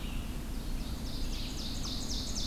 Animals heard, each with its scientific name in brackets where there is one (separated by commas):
Red-eyed Vireo (Vireo olivaceus), Ovenbird (Seiurus aurocapilla), unknown mammal